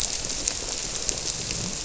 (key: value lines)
label: biophony
recorder: SoundTrap 300